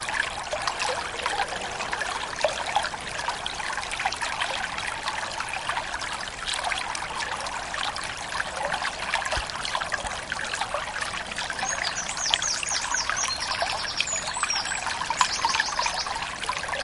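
A calm river flowing. 0.0 - 16.8

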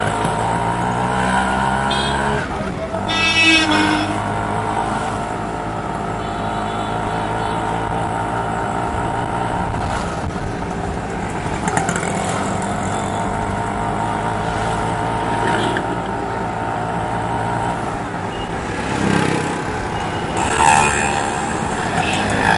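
A low-powered scooter rattles and sputters with a repetitive, uneven pattern. 0.0 - 22.6
A car honks sharply once. 1.8 - 2.5
Two sharp car horns sound with overlapping voices. 2.9 - 4.0
Cars pass by with varying engine noises and tire friction, gradually fading as they move away. 18.0 - 22.6

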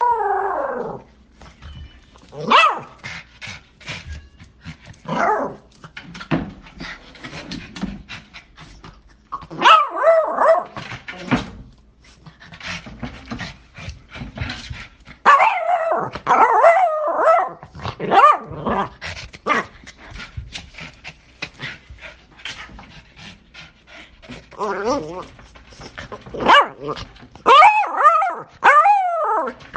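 A small dog is growling. 0.0 - 1.2
A small dog barks. 2.3 - 2.9
A small dog is growling. 5.0 - 5.7
A small dog is panting. 5.8 - 9.4
A small dog barks. 9.4 - 10.8
A small dog is panting. 12.0 - 15.0
A small dog barks. 15.2 - 20.0
A small dog is panting. 20.0 - 24.5
A small dog is growling. 24.5 - 25.4
A small dog barks. 26.3 - 29.8

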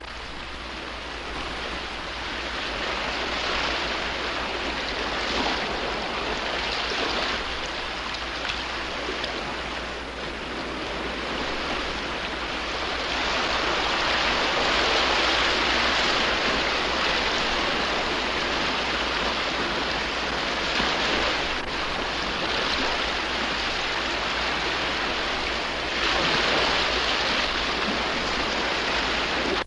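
The sounds of wind, waves, and rain combined. 0.1 - 29.7
Liquid being moved. 14.8 - 18.1
A wave crashes. 25.6 - 28.3

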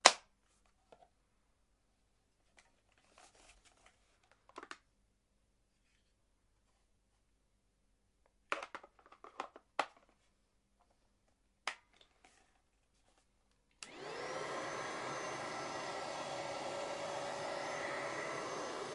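Vacuum cleaner parts clack loudly in a single impact. 0.0 - 0.2
Vacuum cleaner parts clack quietly in a repeating pattern. 0.2 - 13.8
A vacuum cleaner hums loudly with a gradually increasing pattern indoors. 13.8 - 18.9

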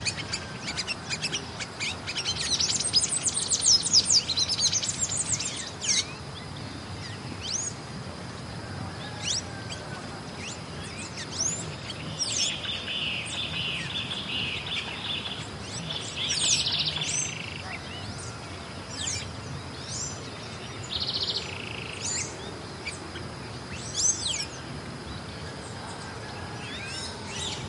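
A bird sings squeakily in a rainforest. 0.0 - 6.1
Birds singing quietly at a distance in a rainforest. 6.0 - 11.3
Multiple birds singing at different distances in a rainforest. 11.2 - 17.4
Birds singing quietly at a distance in a rainforest. 17.4 - 18.9
Multiple birds singing at different distances in a rainforest. 18.8 - 24.6
Birds singing in the distance in a rainforest. 24.6 - 27.7
A person is speaking quietly at a great distance. 25.7 - 26.3

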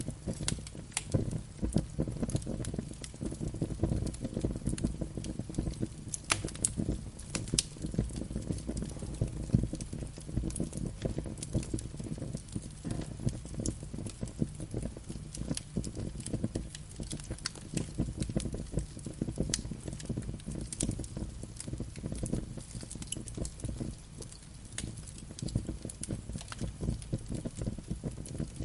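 Fire crackling in the background. 0.0 - 28.6

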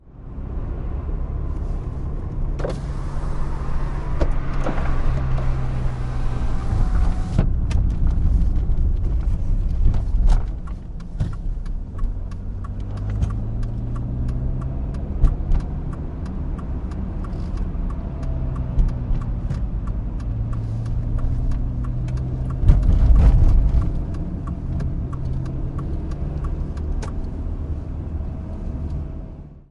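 Sounds of a car interior driving on rough pavement with rhythmic turn signal clicking. 0.0 - 29.7

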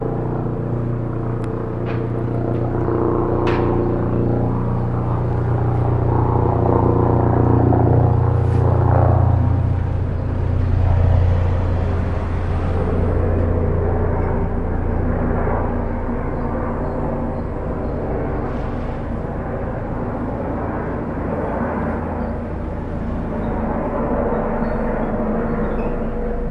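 An object with a propeller is flying. 0.0 - 26.5

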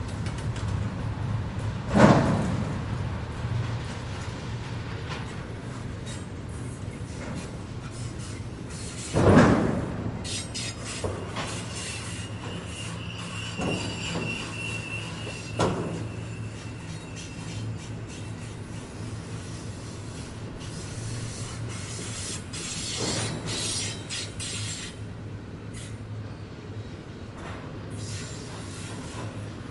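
Gates closing at a train crossing. 0.0 - 4.6
A gate of a train is closing. 8.8 - 11.1
Trains pass by, creating mechanical sounds. 11.1 - 29.7

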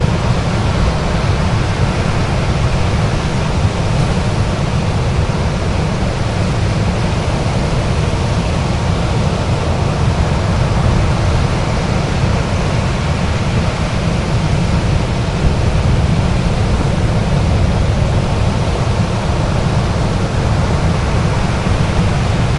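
Water splashes strongly and steadily against the seashore. 0.0 - 22.6

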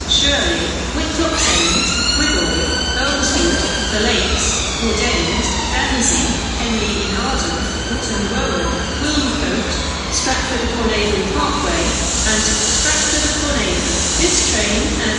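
A woman is making an announcement. 0.0 - 15.2
A siren wails twice in the distance, fading. 1.3 - 12.8
A mechanical brushing sound repeats twice. 12.0 - 15.2

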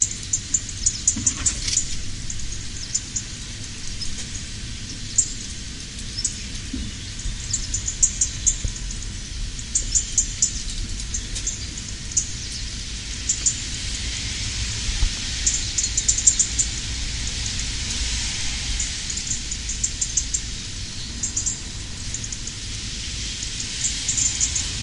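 Birds chirping quietly. 0.0 - 3.3
Forest sounds. 0.0 - 24.8
Birds chirping quietly. 5.0 - 6.4
Birds chirping quietly. 7.3 - 8.8
Birds chirping quietly. 9.6 - 12.4
Birds chirping quietly. 13.2 - 13.7
Birds chirping quietly. 15.4 - 16.8
Birds chirping quietly. 18.7 - 20.5
Birds chirping quietly. 21.2 - 21.6
Birds chirping quietly. 23.3 - 24.7

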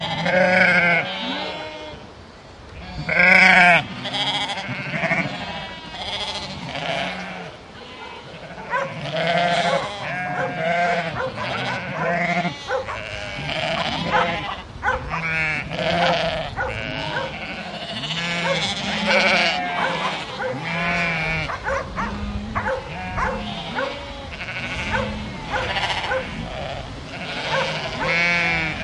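Sheep vocalizations are loud and distinct, suggesting the animal is very near. 0.0 - 8.9
Sheep bleat loudly while dogs bark in the background. 9.0 - 28.8

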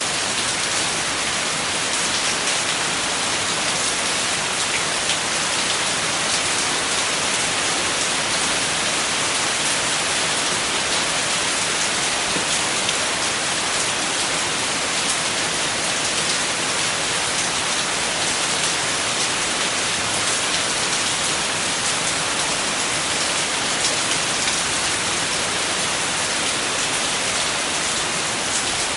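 Heavy rain produces continuous splashing sounds as raindrops hit surfaces. 0.0 - 29.0

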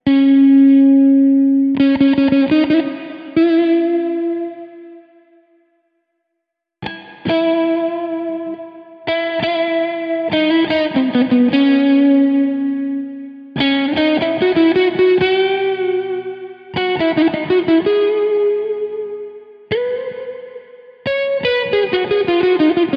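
A guitar is being played. 0.0 - 23.0

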